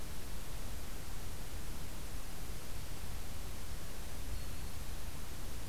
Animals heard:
forest ambience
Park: Acadia National Park